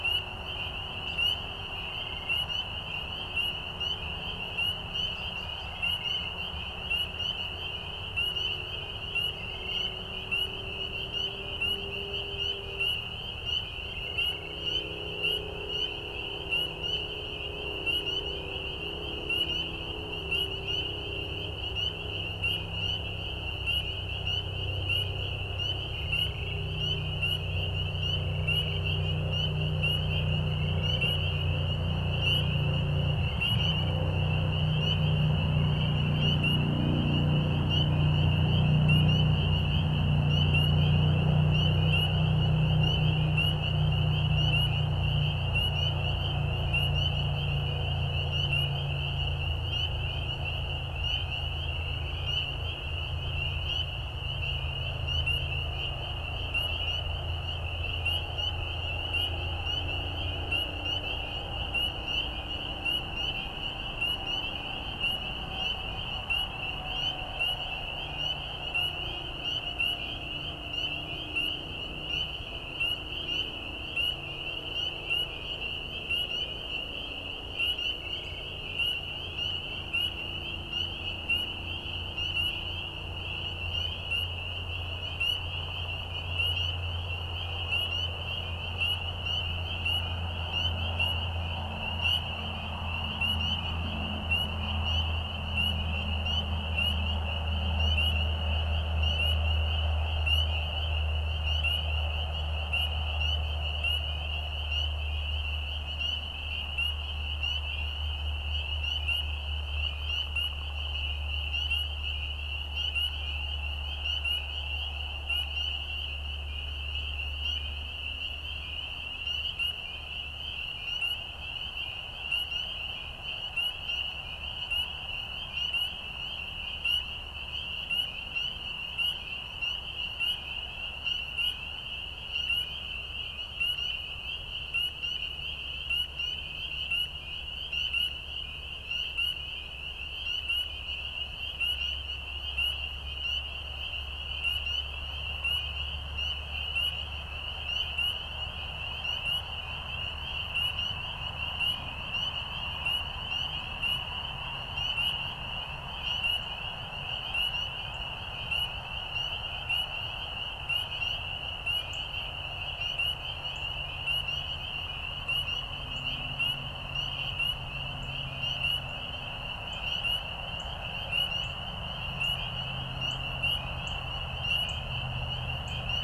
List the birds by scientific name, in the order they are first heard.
Turdus migratorius, Cardinalis cardinalis